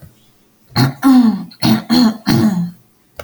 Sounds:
Throat clearing